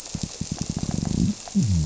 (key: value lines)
label: biophony
recorder: SoundTrap 300